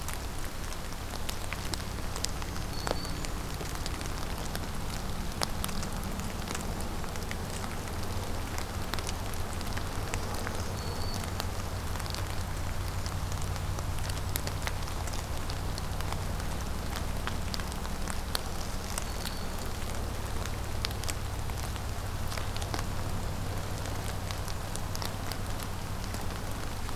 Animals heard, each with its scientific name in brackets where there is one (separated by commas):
Black-throated Green Warbler (Setophaga virens)